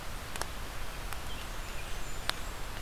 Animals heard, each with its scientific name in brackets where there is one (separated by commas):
Blackburnian Warbler (Setophaga fusca)